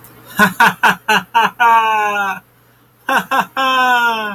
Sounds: Laughter